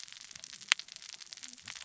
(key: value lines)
label: biophony, cascading saw
recorder: SoundTrap 600 or HydroMoth